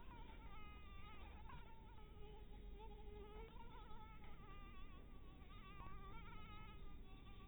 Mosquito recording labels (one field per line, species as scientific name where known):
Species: Anopheles dirus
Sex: female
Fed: blood-fed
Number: one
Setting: cup